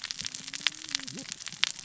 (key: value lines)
label: biophony, cascading saw
recorder: SoundTrap 600 or HydroMoth